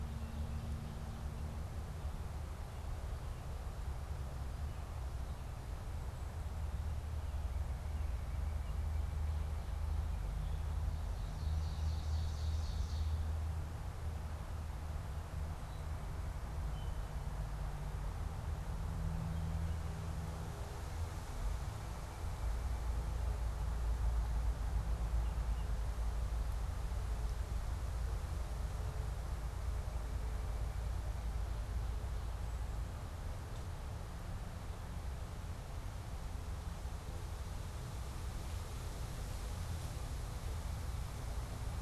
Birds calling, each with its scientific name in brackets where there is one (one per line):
Ovenbird (Seiurus aurocapilla)
unidentified bird